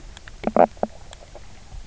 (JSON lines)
{"label": "biophony, knock croak", "recorder": "SoundTrap 300"}
{"label": "biophony, stridulation", "recorder": "SoundTrap 300"}